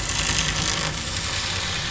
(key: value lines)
label: anthrophony, boat engine
recorder: SoundTrap 500